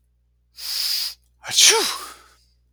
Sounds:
Sneeze